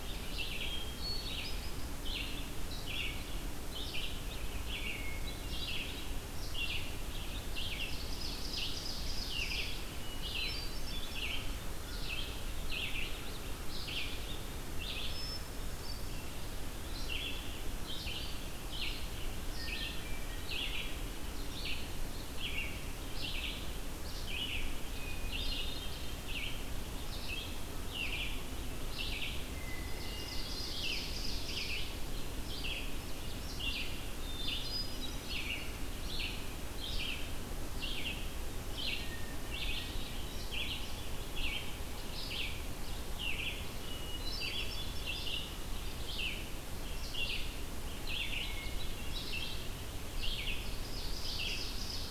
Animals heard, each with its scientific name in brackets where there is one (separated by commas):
Ovenbird (Seiurus aurocapilla), Hermit Thrush (Catharus guttatus), Red-eyed Vireo (Vireo olivaceus), American Crow (Corvus brachyrhynchos)